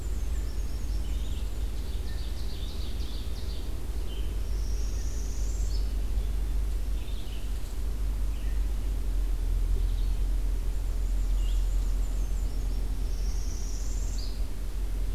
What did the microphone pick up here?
Black-and-white Warbler, Red-eyed Vireo, Ovenbird, Northern Parula